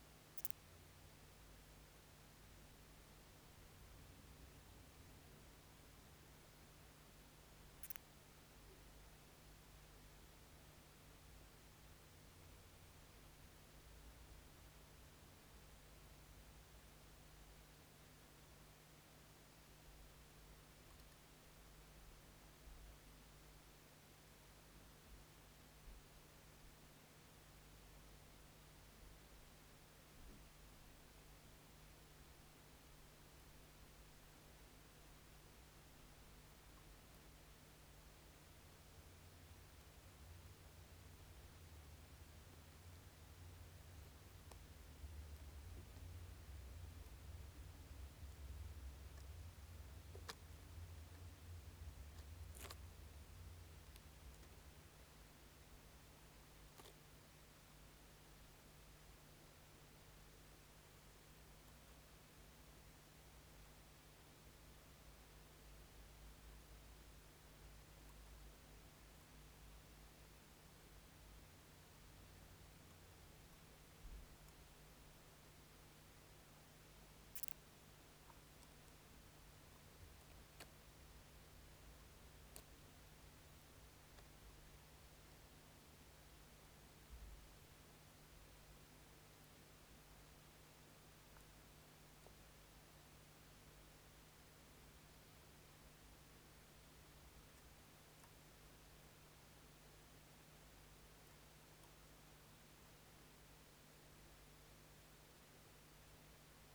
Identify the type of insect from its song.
orthopteran